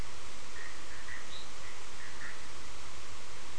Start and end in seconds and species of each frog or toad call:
0.0	3.5	Boana bischoffi
1.2	1.6	Boana leptolineata
2:30am

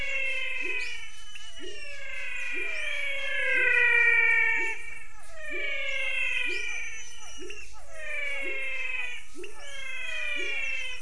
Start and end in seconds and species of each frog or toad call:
0.0	11.0	Leptodactylus labyrinthicus
0.0	11.0	Physalaemus albonotatus
2.4	11.0	Physalaemus cuvieri
6:30pm

